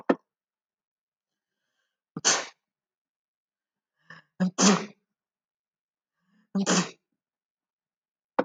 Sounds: Sneeze